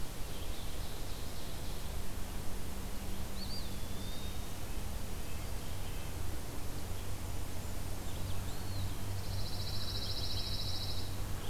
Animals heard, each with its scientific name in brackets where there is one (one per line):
Red-eyed Vireo (Vireo olivaceus)
Eastern Wood-Pewee (Contopus virens)
Red-breasted Nuthatch (Sitta canadensis)
Ovenbird (Seiurus aurocapilla)
Blackburnian Warbler (Setophaga fusca)
Pine Warbler (Setophaga pinus)